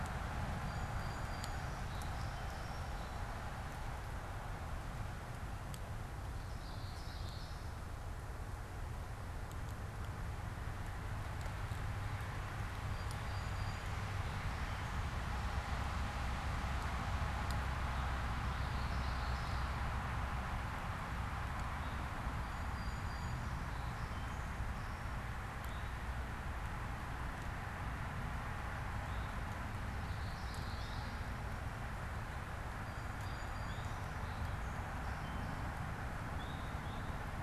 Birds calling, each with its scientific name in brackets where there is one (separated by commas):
Eastern Towhee (Pipilo erythrophthalmus), Song Sparrow (Melospiza melodia), Common Yellowthroat (Geothlypis trichas)